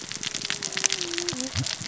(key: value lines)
label: biophony, cascading saw
recorder: SoundTrap 600 or HydroMoth